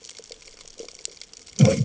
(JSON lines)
{"label": "anthrophony, bomb", "recorder": "HydroMoth"}